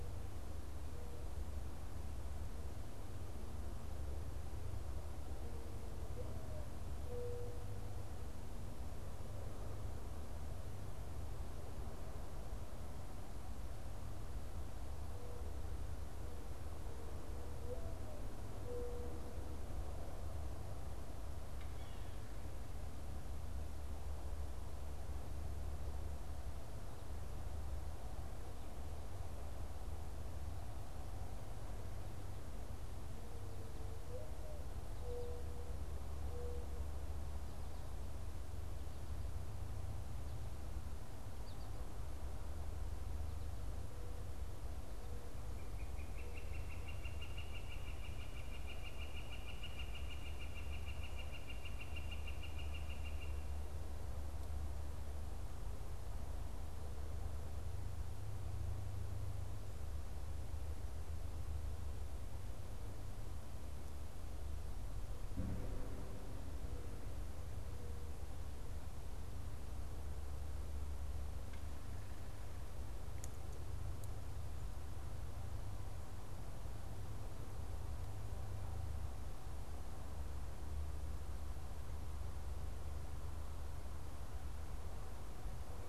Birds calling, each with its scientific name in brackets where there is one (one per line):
Northern Flicker (Colaptes auratus)
Mourning Dove (Zenaida macroura)